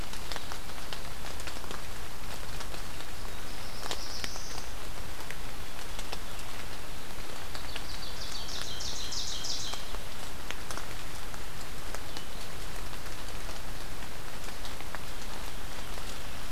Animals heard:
Ovenbird (Seiurus aurocapilla), Black-throated Blue Warbler (Setophaga caerulescens)

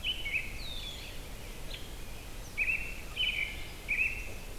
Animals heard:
Red-winged Blackbird (Agelaius phoeniceus), American Robin (Turdus migratorius)

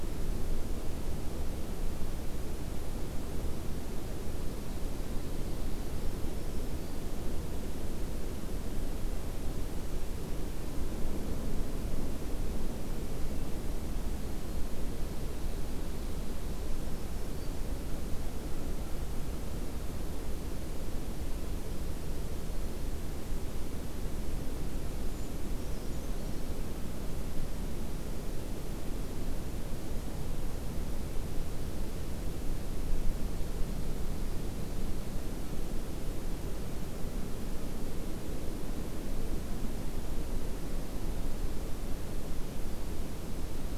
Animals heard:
Brown Creeper (Certhia americana), Black-throated Green Warbler (Setophaga virens)

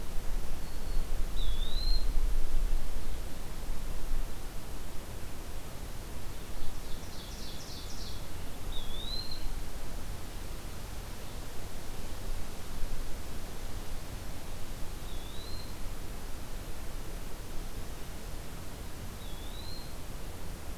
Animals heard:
Eastern Wood-Pewee (Contopus virens), Black-throated Green Warbler (Setophaga virens), Ovenbird (Seiurus aurocapilla)

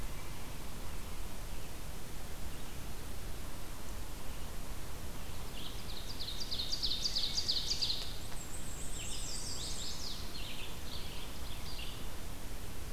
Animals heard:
Black-and-white Warbler (Mniotilta varia), Ovenbird (Seiurus aurocapilla), Red-eyed Vireo (Vireo olivaceus), Chestnut-sided Warbler (Setophaga pensylvanica)

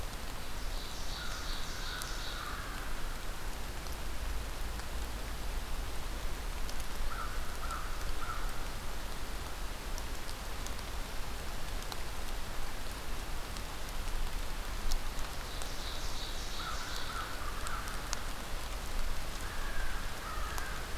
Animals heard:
Ovenbird (Seiurus aurocapilla), American Crow (Corvus brachyrhynchos)

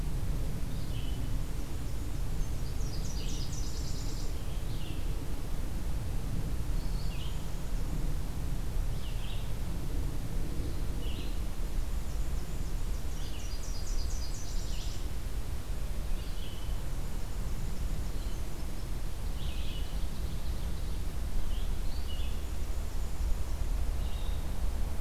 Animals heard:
Black-and-white Warbler (Mniotilta varia), Ovenbird (Seiurus aurocapilla), Red-eyed Vireo (Vireo olivaceus), Nashville Warbler (Leiothlypis ruficapilla)

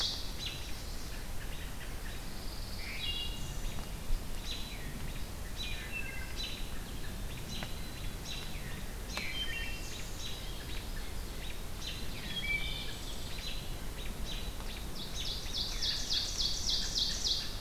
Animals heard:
Wood Thrush (Hylocichla mustelina), Ovenbird (Seiurus aurocapilla), American Robin (Turdus migratorius), Chestnut-sided Warbler (Setophaga pensylvanica), Pine Warbler (Setophaga pinus)

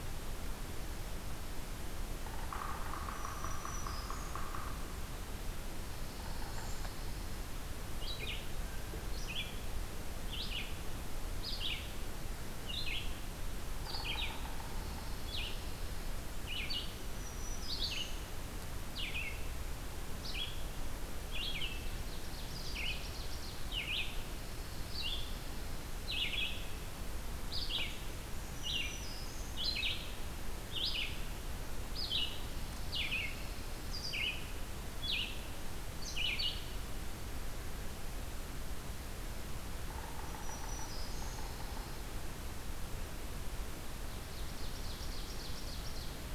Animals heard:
Pine Warbler (Setophaga pinus), Yellow-bellied Sapsucker (Sphyrapicus varius), Ovenbird (Seiurus aurocapilla), Red-eyed Vireo (Vireo olivaceus), Black-throated Green Warbler (Setophaga virens)

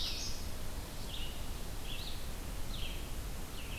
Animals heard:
Red-eyed Vireo (Vireo olivaceus), Common Yellowthroat (Geothlypis trichas)

